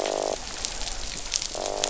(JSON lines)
{"label": "biophony, croak", "recorder": "SoundTrap 500"}